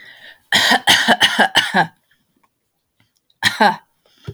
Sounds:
Cough